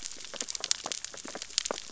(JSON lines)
{"label": "biophony, sea urchins (Echinidae)", "recorder": "SoundTrap 600 or HydroMoth"}